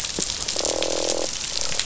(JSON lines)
{"label": "biophony, croak", "recorder": "SoundTrap 500"}